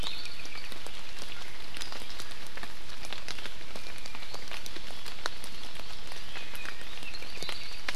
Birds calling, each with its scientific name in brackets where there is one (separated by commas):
Iiwi (Drepanis coccinea), Apapane (Himatione sanguinea)